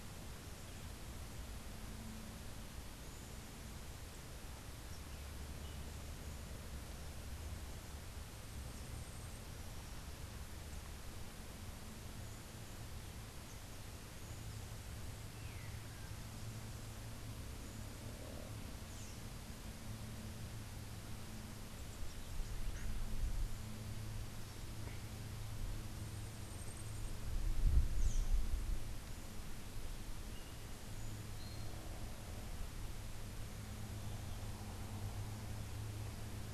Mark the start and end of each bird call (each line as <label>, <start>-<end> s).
Long-tailed Manakin (Chiroxiphia linearis), 15.2-16.3 s
Yellow-crowned Euphonia (Euphonia luteicapilla), 31.3-31.8 s